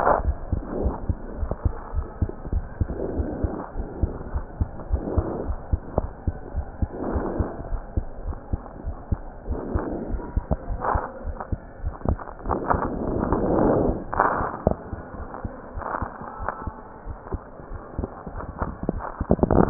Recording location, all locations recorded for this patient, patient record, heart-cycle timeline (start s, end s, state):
aortic valve (AV)
aortic valve (AV)+pulmonary valve (PV)+tricuspid valve (TV)+mitral valve (MV)
#Age: Child
#Sex: Male
#Height: 106.0 cm
#Weight: 20.3 kg
#Pregnancy status: False
#Murmur: Absent
#Murmur locations: nan
#Most audible location: nan
#Systolic murmur timing: nan
#Systolic murmur shape: nan
#Systolic murmur grading: nan
#Systolic murmur pitch: nan
#Systolic murmur quality: nan
#Diastolic murmur timing: nan
#Diastolic murmur shape: nan
#Diastolic murmur grading: nan
#Diastolic murmur pitch: nan
#Diastolic murmur quality: nan
#Outcome: Normal
#Campaign: 2015 screening campaign
0.00	1.04	unannotated
1.04	1.18	S2
1.18	1.40	diastole
1.40	1.50	S1
1.50	1.56	systole
1.56	1.70	S2
1.70	1.92	diastole
1.92	2.08	S1
2.08	2.16	systole
2.16	2.30	S2
2.30	2.50	diastole
2.50	2.66	S1
2.66	2.76	systole
2.76	2.88	S2
2.88	3.12	diastole
3.12	3.30	S1
3.30	3.40	systole
3.40	3.52	S2
3.52	3.78	diastole
3.78	3.90	S1
3.90	4.00	systole
4.00	4.14	S2
4.14	4.34	diastole
4.34	4.46	S1
4.46	4.56	systole
4.56	4.68	S2
4.68	4.88	diastole
4.88	5.04	S1
5.04	5.16	systole
5.16	5.26	S2
5.26	5.46	diastole
5.46	5.58	S1
5.58	5.64	systole
5.64	5.78	S2
5.78	5.96	diastole
5.96	6.10	S1
6.10	6.24	systole
6.24	6.36	S2
6.36	6.54	diastole
6.54	6.66	S1
6.66	6.78	systole
6.78	6.90	S2
6.90	7.08	diastole
7.08	7.24	S1
7.24	7.34	systole
7.34	7.48	S2
7.48	7.70	diastole
7.70	7.82	S1
7.82	7.94	systole
7.94	8.06	S2
8.06	8.26	diastole
8.26	8.38	S1
8.38	8.50	systole
8.50	8.62	S2
8.62	8.83	diastole
8.83	8.96	S1
8.96	9.08	systole
9.08	9.22	S2
9.22	9.48	diastole
9.48	9.62	S1
9.62	9.72	systole
9.72	9.84	S2
9.84	10.08	diastole
10.08	10.22	S1
10.22	10.32	systole
10.32	10.46	S2
10.46	10.68	diastole
10.68	10.82	S1
10.82	10.92	systole
10.92	11.02	S2
11.02	11.26	diastole
11.26	11.36	S1
11.36	11.48	systole
11.48	11.62	S2
11.62	11.84	diastole
11.84	11.94	S1
11.94	12.06	systole
12.06	12.20	S2
12.20	12.46	diastole
12.46	12.60	S1
12.60	12.70	systole
12.70	12.82	S2
12.82	13.03	diastole
13.03	14.88	unannotated
14.88	15.00	S2
15.00	15.17	diastole
15.17	15.28	S1
15.28	15.42	systole
15.42	15.54	S2
15.54	15.76	diastole
15.76	15.84	S1
15.84	16.00	systole
16.00	16.12	S2
16.12	16.40	diastole
16.40	16.50	S1
16.50	16.66	systole
16.66	16.78	S2
16.78	17.08	diastole
17.08	17.18	S1
17.18	17.34	systole
17.34	17.44	S2
17.44	17.72	diastole
17.72	17.80	S1
17.80	17.94	systole
17.94	18.10	S2
18.10	18.34	diastole
18.34	18.44	S1
18.44	18.58	systole
18.58	18.68	S2
18.68	18.90	diastole
18.90	19.70	unannotated